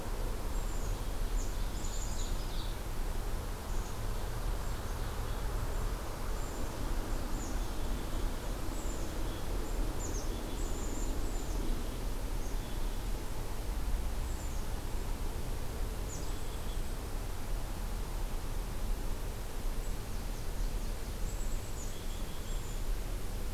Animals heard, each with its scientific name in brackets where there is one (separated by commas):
Nashville Warbler (Leiothlypis ruficapilla), Ovenbird (Seiurus aurocapilla), Black-capped Chickadee (Poecile atricapillus)